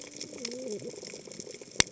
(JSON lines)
{"label": "biophony, cascading saw", "recorder": "HydroMoth"}